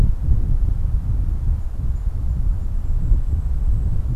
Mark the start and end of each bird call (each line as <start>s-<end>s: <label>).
0.7s-4.2s: Golden-crowned Kinglet (Regulus satrapa)